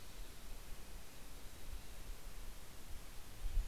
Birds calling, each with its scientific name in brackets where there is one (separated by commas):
Red-breasted Nuthatch (Sitta canadensis), Mountain Chickadee (Poecile gambeli), Golden-crowned Kinglet (Regulus satrapa)